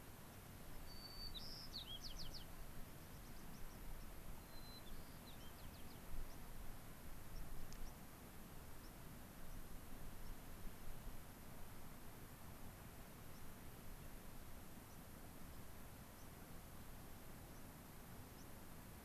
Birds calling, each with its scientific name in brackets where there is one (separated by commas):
White-crowned Sparrow (Zonotrichia leucophrys), American Pipit (Anthus rubescens)